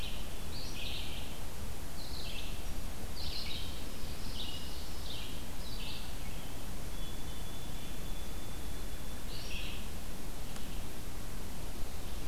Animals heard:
Ovenbird (Seiurus aurocapilla)
White-throated Sparrow (Zonotrichia albicollis)
Red-eyed Vireo (Vireo olivaceus)

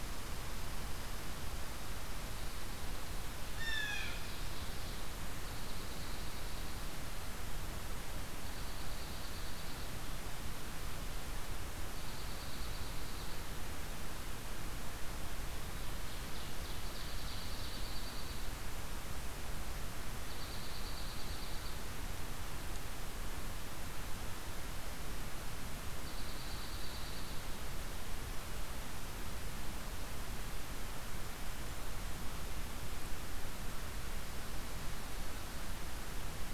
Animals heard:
Blue Jay (Cyanocitta cristata)
Ovenbird (Seiurus aurocapilla)
Eastern Wood-Pewee (Contopus virens)
Dark-eyed Junco (Junco hyemalis)

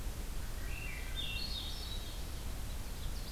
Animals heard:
Ovenbird (Seiurus aurocapilla)
Swainson's Thrush (Catharus ustulatus)
Red Crossbill (Loxia curvirostra)

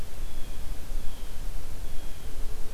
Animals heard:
Blue Jay (Cyanocitta cristata)

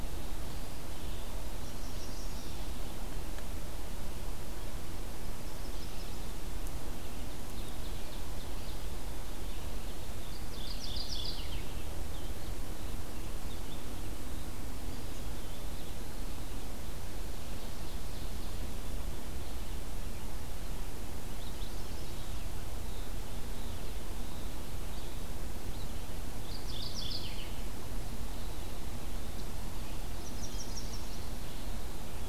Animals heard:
Ovenbird (Seiurus aurocapilla)
Mourning Warbler (Geothlypis philadelphia)
Eastern Wood-Pewee (Contopus virens)
Chestnut-sided Warbler (Setophaga pensylvanica)
Red-eyed Vireo (Vireo olivaceus)

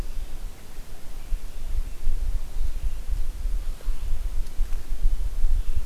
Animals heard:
Red-eyed Vireo (Vireo olivaceus)

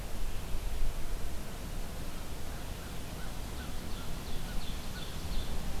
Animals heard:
Ovenbird (Seiurus aurocapilla)
American Crow (Corvus brachyrhynchos)

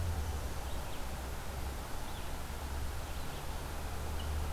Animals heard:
Red-eyed Vireo (Vireo olivaceus)

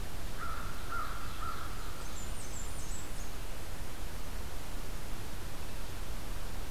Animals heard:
Ovenbird (Seiurus aurocapilla)
Blackburnian Warbler (Setophaga fusca)
American Crow (Corvus brachyrhynchos)

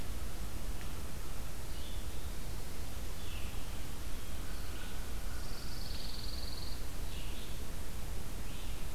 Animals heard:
American Crow (Corvus brachyrhynchos)
Pine Warbler (Setophaga pinus)
Red-eyed Vireo (Vireo olivaceus)

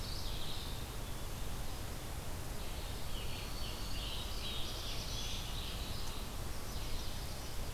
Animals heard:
Red-eyed Vireo (Vireo olivaceus)
Chestnut-sided Warbler (Setophaga pensylvanica)
Black-throated Blue Warbler (Setophaga caerulescens)
Mourning Warbler (Geothlypis philadelphia)
Black-throated Green Warbler (Setophaga virens)
Scarlet Tanager (Piranga olivacea)

